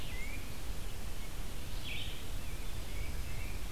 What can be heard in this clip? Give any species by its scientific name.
Baeolophus bicolor, Vireo olivaceus